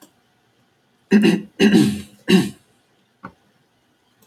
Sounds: Throat clearing